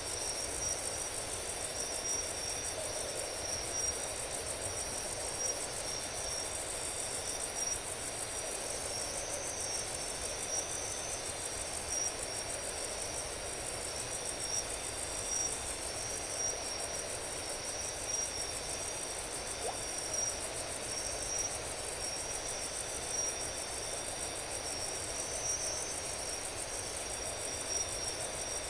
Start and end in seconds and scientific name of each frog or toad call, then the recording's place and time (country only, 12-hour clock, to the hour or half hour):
19.6	19.8	Leptodactylus flavopictus
Brazil, 3:30am